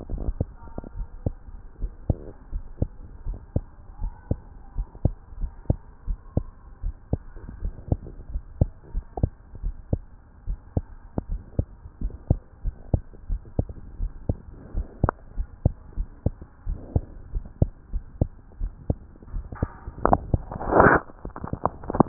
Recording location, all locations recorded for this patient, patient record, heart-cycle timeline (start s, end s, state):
tricuspid valve (TV)
aortic valve (AV)+pulmonary valve (PV)+tricuspid valve (TV)+mitral valve (MV)
#Age: Child
#Sex: Male
#Height: 126.0 cm
#Weight: 25.9 kg
#Pregnancy status: False
#Murmur: Absent
#Murmur locations: nan
#Most audible location: nan
#Systolic murmur timing: nan
#Systolic murmur shape: nan
#Systolic murmur grading: nan
#Systolic murmur pitch: nan
#Systolic murmur quality: nan
#Diastolic murmur timing: nan
#Diastolic murmur shape: nan
#Diastolic murmur grading: nan
#Diastolic murmur pitch: nan
#Diastolic murmur quality: nan
#Outcome: Normal
#Campaign: 2015 screening campaign
0.00	1.50	unannotated
1.50	1.80	diastole
1.80	1.92	S1
1.92	2.04	systole
2.04	2.20	S2
2.20	2.54	diastole
2.54	2.66	S1
2.66	2.78	systole
2.78	2.92	S2
2.92	3.28	diastole
3.28	3.40	S1
3.40	3.52	systole
3.52	3.66	S2
3.66	4.00	diastole
4.00	4.14	S1
4.14	4.26	systole
4.26	4.38	S2
4.38	4.74	diastole
4.74	4.86	S1
4.86	5.00	systole
5.00	5.12	S2
5.12	5.38	diastole
5.38	5.50	S1
5.50	5.62	systole
5.62	5.78	S2
5.78	6.08	diastole
6.08	6.18	S1
6.18	6.34	systole
6.34	6.48	S2
6.48	6.84	diastole
6.84	6.96	S1
6.96	7.08	systole
7.08	7.20	S2
7.20	7.58	diastole
7.58	7.74	S1
7.74	7.88	systole
7.88	8.00	S2
8.00	8.30	diastole
8.30	8.42	S1
8.42	8.56	systole
8.56	8.68	S2
8.68	8.94	diastole
8.94	9.04	S1
9.04	9.18	systole
9.18	9.32	S2
9.32	9.62	diastole
9.62	9.76	S1
9.76	9.90	systole
9.90	10.04	S2
10.04	10.46	diastole
10.46	10.58	S1
10.58	10.72	systole
10.72	10.88	S2
10.88	11.30	diastole
11.30	11.42	S1
11.42	11.54	systole
11.54	11.66	S2
11.66	12.00	diastole
12.00	12.12	S1
12.12	12.22	systole
12.22	12.38	S2
12.38	12.64	diastole
12.64	12.74	S1
12.74	12.90	systole
12.90	13.02	S2
13.02	13.30	diastole
13.30	13.42	S1
13.42	13.54	systole
13.54	13.66	S2
13.66	13.98	diastole
13.98	14.12	S1
14.12	14.28	systole
14.28	14.40	S2
14.40	14.74	diastole
14.74	14.88	S1
14.88	15.02	systole
15.02	15.12	S2
15.12	15.38	diastole
15.38	15.48	S1
15.48	15.62	systole
15.62	15.72	S2
15.72	15.98	diastole
15.98	16.08	S1
16.08	16.22	systole
16.22	16.34	S2
16.34	16.66	diastole
16.66	16.80	S1
16.80	16.92	systole
16.92	17.04	S2
17.04	17.34	diastole
17.34	17.44	S1
17.44	17.54	systole
17.54	17.66	S2
17.66	17.92	diastole
17.92	18.04	S1
18.04	18.20	systole
18.20	18.30	S2
18.30	18.60	diastole
18.60	18.72	S1
18.72	18.86	systole
18.86	18.98	S2
18.98	19.32	diastole
19.32	19.46	S1
19.46	19.60	systole
19.60	19.72	S2
19.72	19.87	diastole
19.87	22.08	unannotated